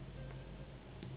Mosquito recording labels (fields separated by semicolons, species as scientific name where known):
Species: Anopheles gambiae s.s.; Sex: female; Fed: unfed; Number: one; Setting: insect culture